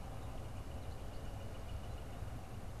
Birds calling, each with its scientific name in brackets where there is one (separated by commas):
Northern Flicker (Colaptes auratus)